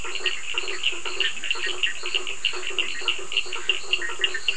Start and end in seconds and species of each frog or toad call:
0.0	1.7	Bischoff's tree frog
0.0	4.5	blacksmith tree frog
0.0	4.5	Cochran's lime tree frog
1.3	1.5	Leptodactylus latrans
2.9	3.4	Leptodactylus latrans
3.0	4.5	Bischoff's tree frog

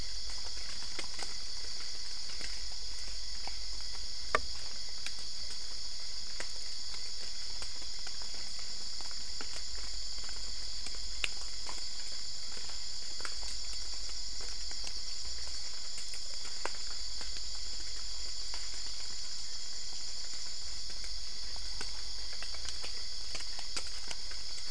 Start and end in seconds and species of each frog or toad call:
none

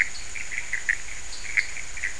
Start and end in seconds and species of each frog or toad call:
0.0	2.1	pointedbelly frog
0.0	2.1	Pithecopus azureus
0.1	0.3	dwarf tree frog
1.2	1.9	dwarf tree frog

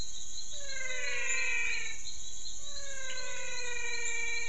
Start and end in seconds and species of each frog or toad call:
0.0	4.4	menwig frog
1.6	2.0	pointedbelly frog

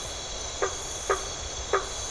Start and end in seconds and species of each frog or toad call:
0.0	1.9	blacksmith tree frog

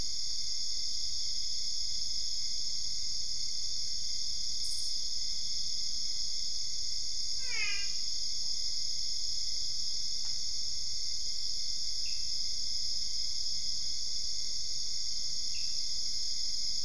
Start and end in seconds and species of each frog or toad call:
7.2	8.1	brown-spotted dwarf frog
12.0	12.5	Pithecopus azureus
15.4	16.0	Pithecopus azureus

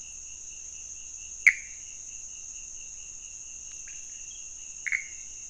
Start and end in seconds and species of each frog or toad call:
1.3	1.9	Pithecopus azureus
3.7	4.3	pointedbelly frog
4.8	5.3	Pithecopus azureus

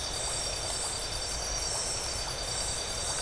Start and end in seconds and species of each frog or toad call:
none

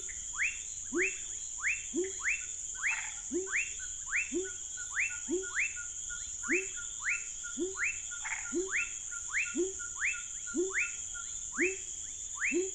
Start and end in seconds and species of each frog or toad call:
0.0	12.7	rufous frog
0.0	12.7	pepper frog
2.8	3.3	Chaco tree frog
8.1	8.6	Chaco tree frog

